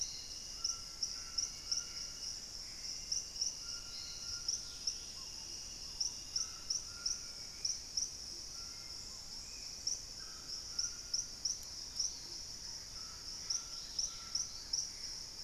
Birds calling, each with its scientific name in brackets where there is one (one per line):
Dusky-capped Greenlet (Pachysylvia hypoxantha)
White-throated Toucan (Ramphastos tucanus)
Dusky-throated Antshrike (Thamnomanes ardesiacus)
Hauxwell's Thrush (Turdus hauxwelli)
unidentified bird
Gray Antbird (Cercomacra cinerascens)
Purple-throated Fruitcrow (Querula purpurata)